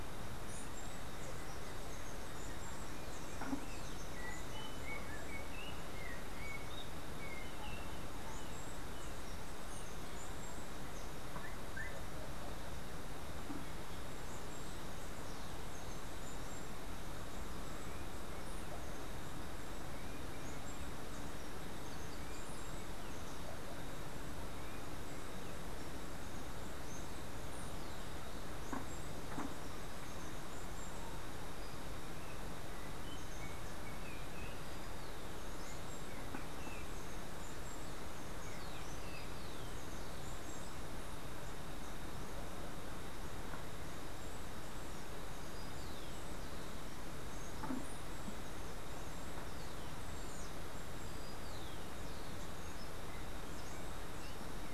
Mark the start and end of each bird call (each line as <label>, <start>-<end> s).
Steely-vented Hummingbird (Saucerottia saucerottei), 0.0-11.6 s
Yellow-backed Oriole (Icterus chrysater), 3.6-8.2 s
Steely-vented Hummingbird (Saucerottia saucerottei), 13.9-23.8 s
Yellow-backed Oriole (Icterus chrysater), 31.9-39.4 s
Rufous-collared Sparrow (Zonotrichia capensis), 45.1-52.3 s